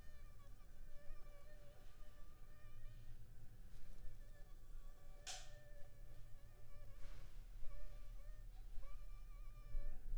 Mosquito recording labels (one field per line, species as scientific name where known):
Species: Anopheles funestus s.s.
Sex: female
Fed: unfed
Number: one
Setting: cup